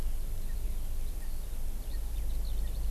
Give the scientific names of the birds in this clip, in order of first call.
Pternistis erckelii, Alauda arvensis